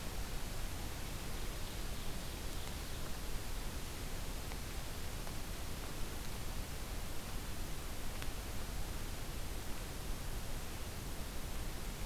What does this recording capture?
Ovenbird